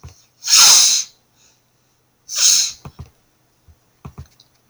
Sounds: Sniff